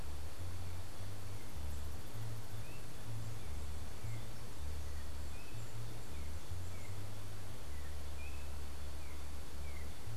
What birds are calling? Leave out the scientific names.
Yellow-backed Oriole